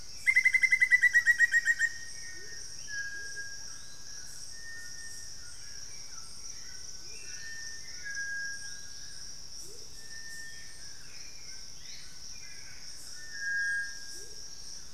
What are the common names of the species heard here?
Amazonian Motmot, Hauxwell's Thrush, White-throated Toucan, Black-faced Antthrush, Gray-crowned Flycatcher